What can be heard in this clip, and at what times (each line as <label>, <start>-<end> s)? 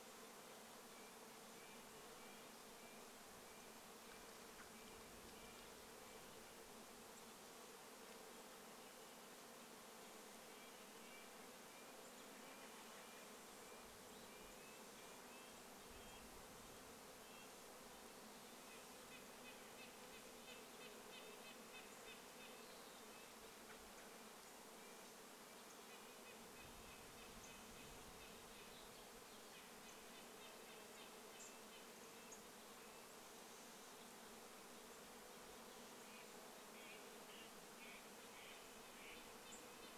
Red-breasted Nuthatch song, 0-8 s
insect buzz, 0-40 s
unidentified bird chip note, 4-8 s
Red-breasted Nuthatch song, 10-32 s
American Robin call, 12-14 s
American Robin call, 22-24 s
Western Wood-Pewee song, 22-24 s
unidentified bird chip note, 30-40 s
Steller's Jay call, 36-40 s
Red-breasted Nuthatch song, 38-40 s